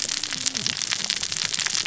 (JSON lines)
{"label": "biophony, cascading saw", "recorder": "SoundTrap 600 or HydroMoth"}